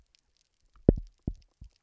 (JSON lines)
{"label": "biophony, double pulse", "recorder": "SoundTrap 300"}